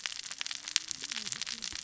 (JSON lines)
{"label": "biophony, cascading saw", "recorder": "SoundTrap 600 or HydroMoth"}